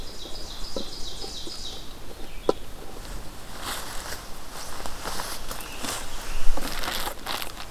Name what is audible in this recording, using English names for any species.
Ovenbird, Red-eyed Vireo